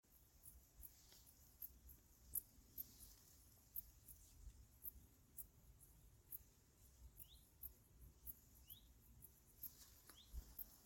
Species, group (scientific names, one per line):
Pholidoptera griseoaptera
Orthoptera